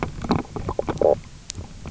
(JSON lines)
{"label": "biophony, knock croak", "recorder": "SoundTrap 300"}